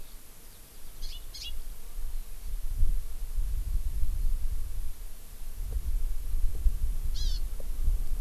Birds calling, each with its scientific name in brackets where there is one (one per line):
House Finch (Haemorhous mexicanus)
Hawaii Amakihi (Chlorodrepanis virens)
Eurasian Skylark (Alauda arvensis)